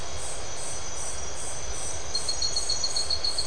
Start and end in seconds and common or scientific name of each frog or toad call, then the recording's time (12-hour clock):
none
9:00pm